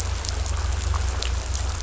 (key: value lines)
label: anthrophony, boat engine
recorder: SoundTrap 500